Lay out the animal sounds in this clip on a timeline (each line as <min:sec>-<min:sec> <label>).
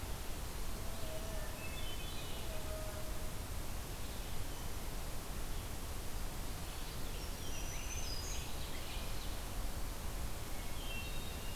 0:00.0-0:11.6 Red-eyed Vireo (Vireo olivaceus)
0:01.0-0:02.5 Hermit Thrush (Catharus guttatus)
0:06.4-0:08.9 Scarlet Tanager (Piranga olivacea)
0:06.7-0:09.6 Ovenbird (Seiurus aurocapilla)
0:07.0-0:08.8 Black-throated Green Warbler (Setophaga virens)
0:10.6-0:11.6 Hermit Thrush (Catharus guttatus)